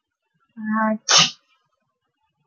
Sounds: Sneeze